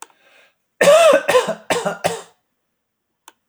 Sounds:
Cough